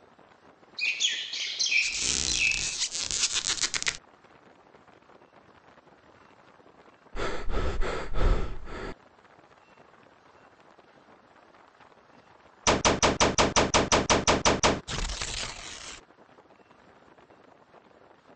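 First at 0.76 seconds, there is chirping. While that goes on, at 1.81 seconds, squeaking is heard. Then at 7.14 seconds, someone breathes. After that, at 12.64 seconds, you can hear gunfire. Next, at 14.87 seconds, the sound of tearing comes through. A faint, steady noise lies beneath it all.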